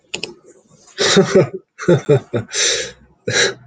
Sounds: Laughter